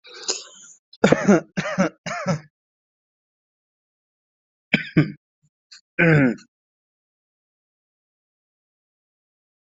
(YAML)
expert_labels:
- quality: poor
  cough_type: dry
  dyspnea: false
  wheezing: false
  stridor: false
  choking: false
  congestion: false
  nothing: true
  diagnosis: upper respiratory tract infection
  severity: mild